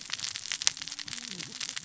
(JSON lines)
{"label": "biophony, cascading saw", "recorder": "SoundTrap 600 or HydroMoth"}